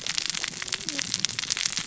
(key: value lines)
label: biophony, cascading saw
recorder: SoundTrap 600 or HydroMoth